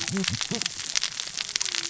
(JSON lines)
{"label": "biophony, cascading saw", "recorder": "SoundTrap 600 or HydroMoth"}